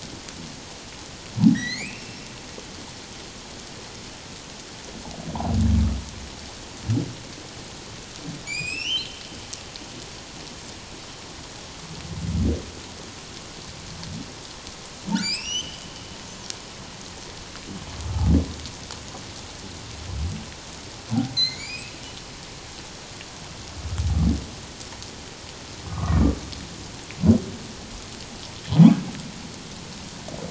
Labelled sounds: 1.5	2.2	humpback whale, 1.5 to 7.3 kHz
5.3	5.6	humpback whale, 0.78 to 1.0 kHz
8.5	9.2	humpback whale, 2.2 to 8.0 kHz
15.2	15.8	humpback whale, 2.1 to 6.3 kHz
21.4	21.9	humpback whale, 2.0 to 5.2 kHz
25.9	26.2	humpback whale, 0.97 to 1.3 kHz

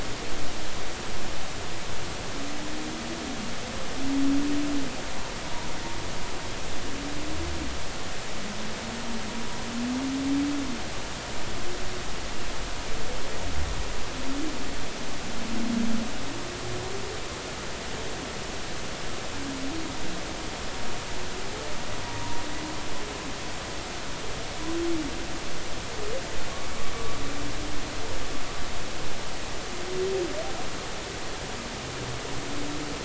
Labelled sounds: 26.5	26.8	humpback whale, 1.0 to 1.3 kHz

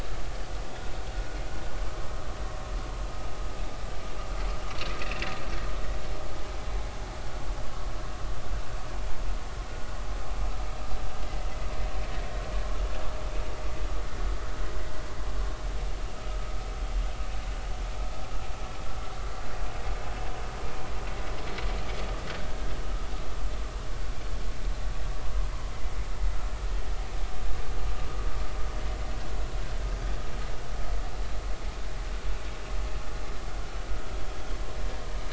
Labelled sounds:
22.4	22.7	vessel noise, 1.5 to 1.7 kHz

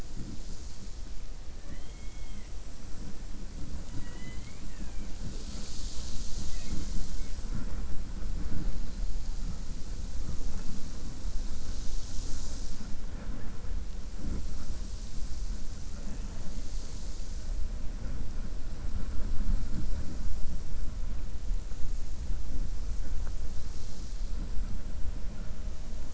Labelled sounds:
1.5	2.5	killer whale, 1.2 to 3.3 kHz

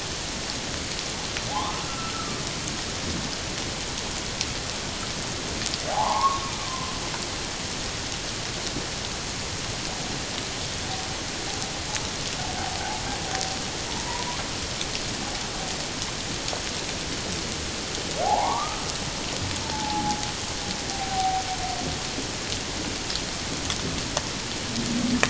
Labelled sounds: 1.5	2.4	humpback whale, 0.78 to 1.5 kHz
5.9	6.9	humpback whale, 0.78 to 1.2 kHz
13.9	14.4	humpback whale, 0.84 to 1.2 kHz
18.2	20.2	humpback whale, 0.78 to 1.3 kHz
20.9	21.4	humpback whale, 0.78 to 0.81 kHz

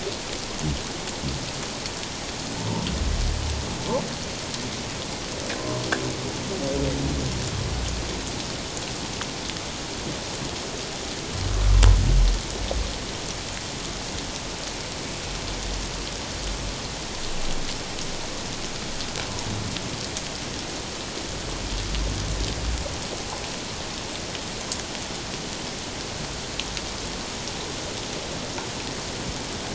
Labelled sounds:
5.6	5.8	humpback whale, 0.94 to 1.2 kHz

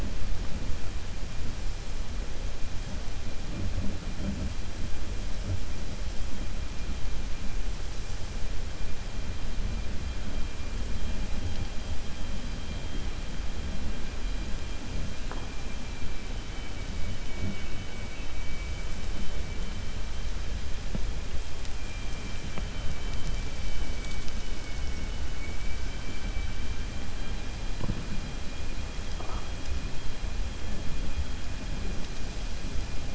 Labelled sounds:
25.3	27.0	vessel noise, 1.5 to 3.2 kHz

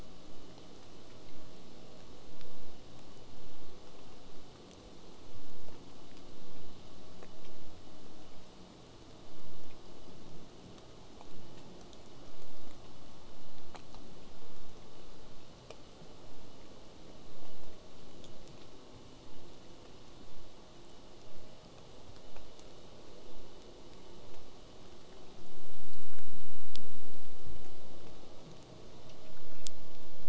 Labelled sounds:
19.3	24.3	vessel noise, 0 to 8.0 kHz

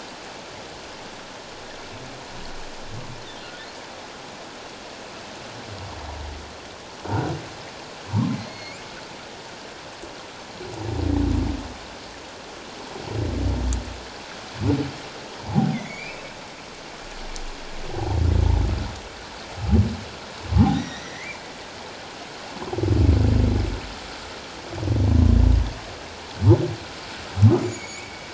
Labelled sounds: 7.1	7.3	humpback whale, 1.3 to 1.6 kHz
8.1	8.8	humpback whale, 0.88 to 4.5 kHz
15.5	16.3	humpback whale, 0.78 to 2.7 kHz
20.6	21.4	humpback whale, 0.78 to 6.0 kHz
27.6	28.2	humpback whale, 2.1 to 7.0 kHz

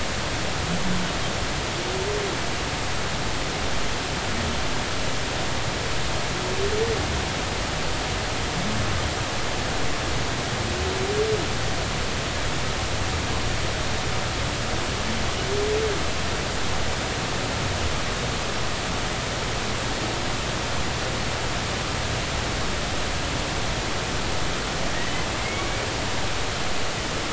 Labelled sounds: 25.4	25.7	humpback whale, 2.0 to 2.3 kHz

